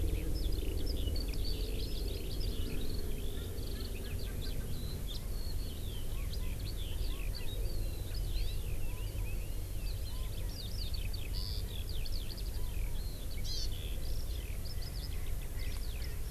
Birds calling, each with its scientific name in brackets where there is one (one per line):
Erckel's Francolin (Pternistis erckelii)
Hawaii Amakihi (Chlorodrepanis virens)
Eurasian Skylark (Alauda arvensis)